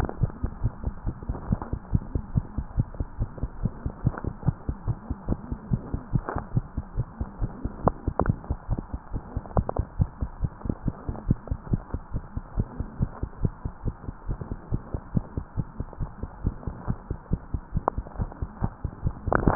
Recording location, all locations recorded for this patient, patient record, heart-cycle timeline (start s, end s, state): tricuspid valve (TV)
aortic valve (AV)+pulmonary valve (PV)+tricuspid valve (TV)+mitral valve (MV)
#Age: Child
#Sex: Female
#Height: 95.0 cm
#Weight: 14.0 kg
#Pregnancy status: False
#Murmur: Absent
#Murmur locations: nan
#Most audible location: nan
#Systolic murmur timing: nan
#Systolic murmur shape: nan
#Systolic murmur grading: nan
#Systolic murmur pitch: nan
#Systolic murmur quality: nan
#Diastolic murmur timing: nan
#Diastolic murmur shape: nan
#Diastolic murmur grading: nan
#Diastolic murmur pitch: nan
#Diastolic murmur quality: nan
#Outcome: Abnormal
#Campaign: 2015 screening campaign
0.00	2.66	unannotated
2.66	2.78	diastole
2.78	2.88	S1
2.88	2.97	systole
2.97	3.06	S2
3.06	3.20	diastole
3.20	3.30	S1
3.30	3.42	systole
3.42	3.50	S2
3.50	3.62	diastole
3.62	3.72	S1
3.72	3.84	systole
3.84	3.94	S2
3.94	4.04	diastole
4.04	4.16	S1
4.16	4.26	systole
4.26	4.34	S2
4.34	4.48	diastole
4.48	4.56	S1
4.56	4.68	systole
4.68	4.76	S2
4.76	4.88	diastole
4.88	4.98	S1
4.98	5.08	systole
5.08	5.15	S2
5.15	5.28	diastole
5.28	5.40	S1
5.40	5.48	systole
5.48	5.58	S2
5.58	5.70	diastole
5.70	5.82	S1
5.82	5.91	systole
5.91	6.02	S2
6.02	6.12	diastole
6.12	6.24	S1
6.24	6.36	systole
6.36	6.44	S2
6.44	6.54	diastole
6.54	6.66	S1
6.66	6.76	systole
6.76	6.84	S2
6.84	6.94	diastole
6.94	7.06	S1
7.06	7.19	systole
7.19	7.28	S2
7.28	7.40	diastole
7.40	7.50	S1
7.50	7.62	systole
7.62	7.72	S2
7.72	7.84	diastole
7.84	7.94	S1
7.94	8.06	systole
8.06	8.14	S2
8.14	8.26	diastole
8.26	8.38	S1
8.38	8.49	systole
8.49	8.58	S2
8.58	8.70	diastole
8.70	8.80	S1
8.80	8.92	systole
8.92	9.00	S2
9.00	9.12	diastole
9.12	9.22	S1
9.22	9.34	systole
9.34	9.44	S2
9.44	9.56	diastole
9.56	9.68	S1
9.68	9.78	systole
9.78	9.86	S2
9.86	9.98	diastole
9.98	10.10	S1
10.10	10.20	systole
10.20	10.30	S2
10.30	10.42	diastole
10.42	10.52	S1
10.52	10.64	systole
10.64	10.74	S2
10.74	10.84	diastole
10.84	10.94	S1
10.94	11.06	systole
11.06	11.14	S2
11.14	11.28	diastole
11.28	11.36	S1
11.36	11.49	systole
11.49	11.58	S2
11.58	11.70	diastole
11.70	11.82	S1
11.82	11.92	systole
11.92	12.02	S2
12.02	12.12	diastole
12.12	12.21	S1
12.21	12.34	systole
12.34	12.44	S2
12.44	12.56	diastole
12.56	12.68	S1
12.68	12.78	systole
12.78	12.88	S2
12.88	13.00	diastole
13.00	13.08	S1
13.08	13.20	systole
13.20	13.30	S2
13.30	13.42	diastole
13.42	13.52	S1
13.52	13.62	systole
13.62	13.72	S2
13.72	13.83	diastole
13.83	13.96	S1
13.96	14.06	systole
14.06	14.12	S2
14.12	14.27	diastole
14.27	14.38	S1
14.38	14.49	systole
14.49	14.58	S2
14.58	14.70	diastole
14.70	14.82	S1
14.82	14.92	systole
14.92	15.00	S2
15.00	15.14	diastole
15.14	15.24	S1
15.24	15.35	systole
15.35	15.44	S2
15.44	15.55	diastole
15.55	15.68	S1
15.68	15.77	systole
15.77	15.86	S2
15.86	16.00	diastole
16.00	16.10	S1
16.10	16.21	systole
16.21	16.29	S2
16.29	16.44	diastole
16.44	16.54	S1
16.54	16.65	systole
16.65	16.76	S2
16.76	16.87	diastole
16.87	16.98	S1
16.98	17.08	systole
17.08	17.18	S2
17.18	17.32	diastole
17.32	17.40	S1
17.40	17.54	systole
17.54	17.62	S2
17.62	17.73	diastole
17.73	17.84	S1
17.84	17.95	systole
17.95	18.06	S2
18.06	18.18	diastole
18.18	18.30	S1
18.30	18.39	systole
18.39	18.50	S2
18.50	18.62	diastole
18.62	19.55	unannotated